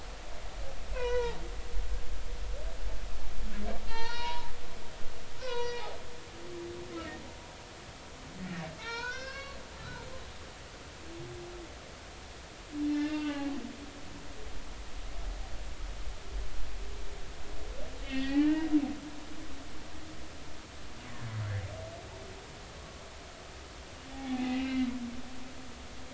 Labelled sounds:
0.9	1.4	humpback whale, 0.83 to 3.0 kHz
3.9	4.5	humpback whale, 0.83 to 4.8 kHz
5.4	5.9	humpback whale, 0.90 to 5.8 kHz
8.8	9.6	humpback whale, 0.83 to 6.6 kHz
12.9	13.6	humpback whale, 0.80 to 3.7 kHz
18.0	18.7	humpback whale, 0.80 to 4.5 kHz
24.1	24.9	humpback whale, 0.80 to 2.9 kHz

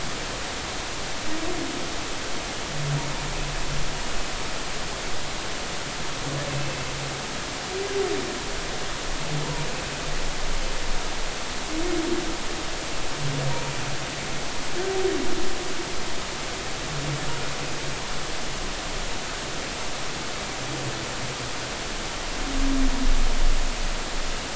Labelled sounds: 6.5	6.8	humpback whale, 2.6 to 2.7 kHz

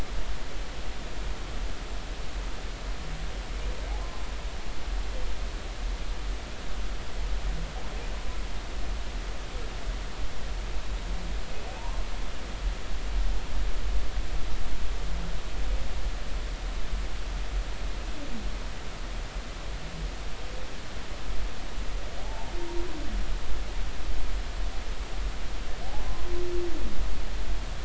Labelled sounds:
11.8	12.0	humpback whale, 0.86 to 1.1 kHz
22.2	22.5	humpback whale, 0.80 to 0.96 kHz

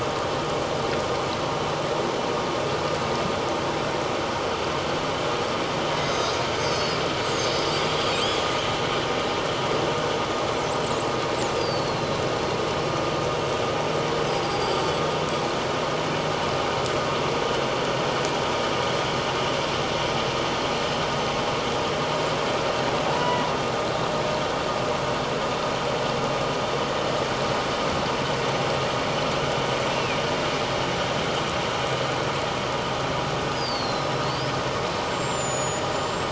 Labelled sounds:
6.0	7.0	killer whale, northern resident, 3.7 to 8.0 kHz
11.6	12.2	killer whale, northern resident, 3.9 to 5.0 kHz
14.4	14.8	killer whale, northern resident, 4.5 to 5.0 kHz
23.0	23.4	killer whale, northern resident, 0.78 to 2.0 kHz
29.9	30.2	killer whale, northern resident, 2.3 to 2.8 kHz
33.4	34.5	killer whale, northern resident, 3.9 to 5.4 kHz
35.1	36.3	killer whale, northern resident, 6.8 to 7.9 kHz

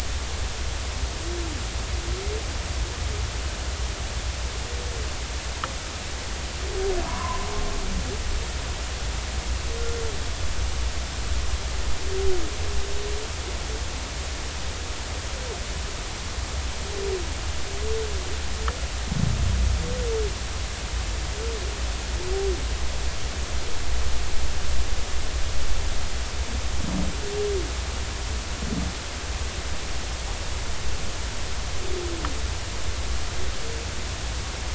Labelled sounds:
7.1	7.5	humpback whale, 0.90 to 1.2 kHz

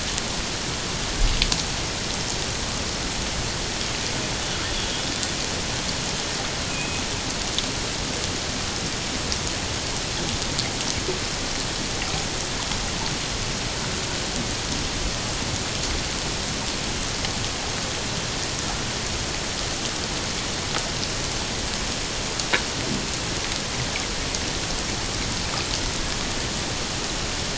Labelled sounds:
6.7	7.1	killer whale, Bigg's (transient), 2.4 to 2.6 kHz

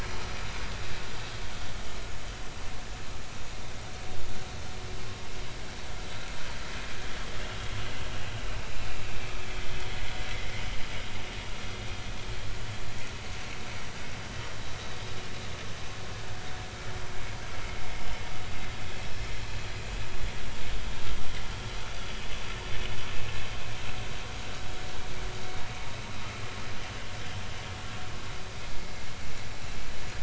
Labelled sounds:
13.3	13.6	vessel noise, 2.6 to 2.8 kHz

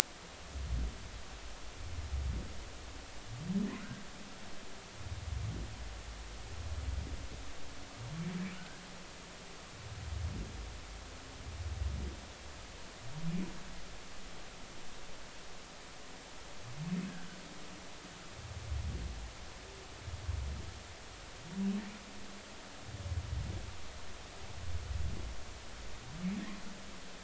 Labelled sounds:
3.8	4.0	humpback whale, 1.4 to 1.7 kHz
8.5	8.8	humpback whale, 1.4 to 1.7 kHz

